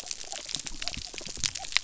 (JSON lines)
{"label": "biophony", "recorder": "SoundTrap 300"}